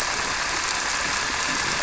{"label": "anthrophony, boat engine", "recorder": "SoundTrap 300"}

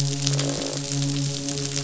{"label": "biophony, midshipman", "recorder": "SoundTrap 500"}
{"label": "biophony, croak", "recorder": "SoundTrap 500"}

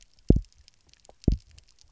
{"label": "biophony, double pulse", "recorder": "SoundTrap 300"}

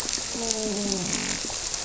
{"label": "biophony, grouper", "recorder": "SoundTrap 300"}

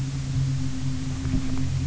{"label": "anthrophony, boat engine", "recorder": "SoundTrap 300"}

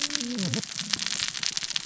{"label": "biophony, cascading saw", "recorder": "SoundTrap 600 or HydroMoth"}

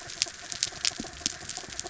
{"label": "anthrophony, mechanical", "recorder": "SoundTrap 300"}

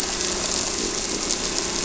{"label": "anthrophony, boat engine", "recorder": "SoundTrap 300"}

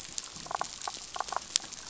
{"label": "biophony, damselfish", "recorder": "SoundTrap 500"}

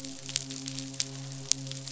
{"label": "biophony, midshipman", "recorder": "SoundTrap 500"}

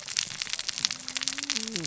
{"label": "biophony, cascading saw", "recorder": "SoundTrap 600 or HydroMoth"}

